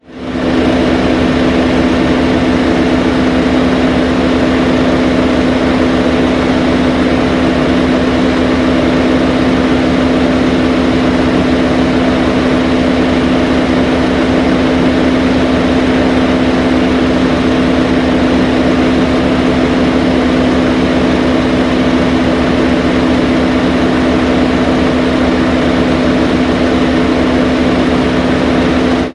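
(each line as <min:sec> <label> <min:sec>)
0:00.1 An engine hums loudly at a high frequency while idling. 0:29.1
0:00.1 Low-frequency steady vibrant engine sounds. 0:29.1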